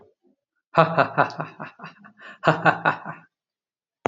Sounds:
Laughter